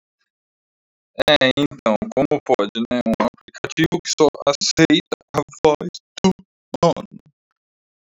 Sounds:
Sneeze